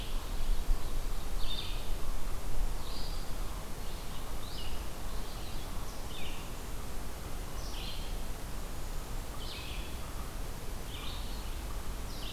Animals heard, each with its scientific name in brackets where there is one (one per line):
Eastern Chipmunk (Tamias striatus)
Red-eyed Vireo (Vireo olivaceus)